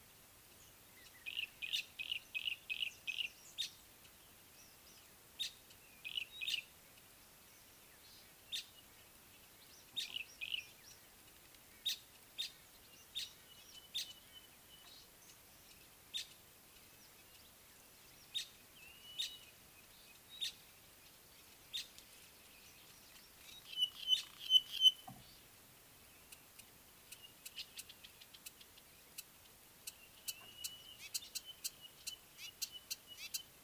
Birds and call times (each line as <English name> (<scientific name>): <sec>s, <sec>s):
Yellow-breasted Apalis (Apalis flavida): 2.4s, 6.1s, 10.5s
Village Weaver (Ploceus cucullatus): 5.4s, 8.5s, 13.2s, 20.4s
Pygmy Batis (Batis perkeo): 14.4s, 24.5s, 31.3s
Blue-naped Mousebird (Urocolius macrourus): 19.0s